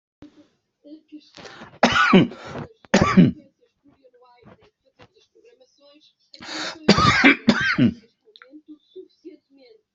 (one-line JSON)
{"expert_labels": [{"quality": "ok", "cough_type": "dry", "dyspnea": false, "wheezing": true, "stridor": false, "choking": false, "congestion": false, "nothing": false, "diagnosis": "COVID-19", "severity": "mild"}], "age": 56, "gender": "male", "respiratory_condition": false, "fever_muscle_pain": false, "status": "healthy"}